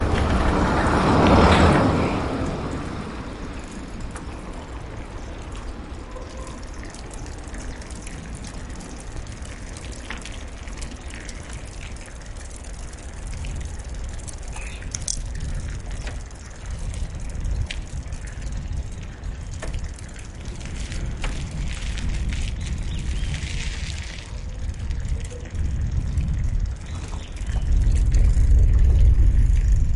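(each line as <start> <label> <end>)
0.0 A car passes by with a continuous engine sound. 3.4
4.4 The sound of cycling on a slightly wet road. 30.0
14.9 A short metallic key jingling sound. 15.3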